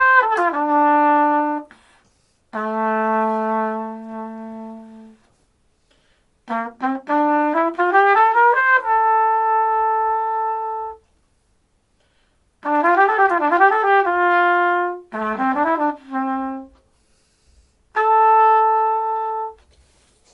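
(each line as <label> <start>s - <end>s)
A trumpet is playing. 0.0s - 1.8s
A trumpet plays a sustained note. 2.5s - 5.2s
A trumpet is playing. 6.4s - 11.0s
A trumpet is playing. 12.6s - 16.8s
A trumpet plays a sustained note. 17.8s - 19.7s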